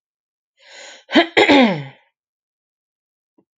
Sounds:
Throat clearing